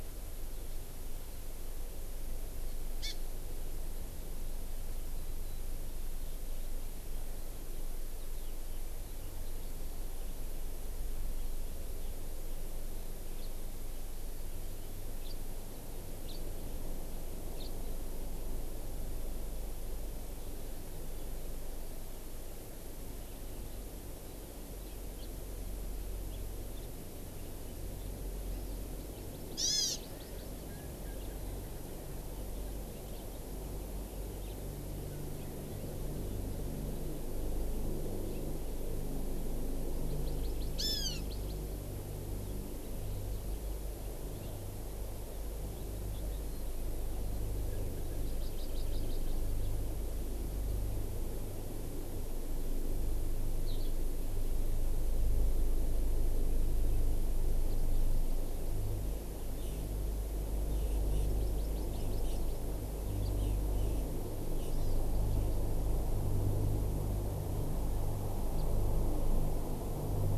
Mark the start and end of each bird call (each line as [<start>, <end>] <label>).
[2.99, 3.19] Hawaii Amakihi (Chlorodrepanis virens)
[13.39, 13.49] House Finch (Haemorhous mexicanus)
[15.19, 15.39] House Finch (Haemorhous mexicanus)
[16.29, 16.39] House Finch (Haemorhous mexicanus)
[17.59, 17.69] House Finch (Haemorhous mexicanus)
[28.89, 30.59] Hawaii Amakihi (Chlorodrepanis virens)
[40.09, 41.59] Hawaii Amakihi (Chlorodrepanis virens)
[40.79, 41.19] Hawaiian Hawk (Buteo solitarius)
[48.29, 49.69] Hawaii Amakihi (Chlorodrepanis virens)
[53.69, 53.89] Eurasian Skylark (Alauda arvensis)
[61.19, 62.69] Hawaii Amakihi (Chlorodrepanis virens)
[64.69, 64.99] Hawaii Amakihi (Chlorodrepanis virens)